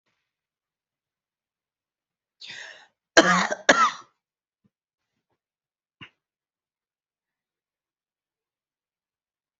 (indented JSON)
{
  "expert_labels": [
    {
      "quality": "good",
      "cough_type": "wet",
      "dyspnea": false,
      "wheezing": false,
      "stridor": false,
      "choking": false,
      "congestion": false,
      "nothing": true,
      "diagnosis": "lower respiratory tract infection",
      "severity": "mild"
    }
  ]
}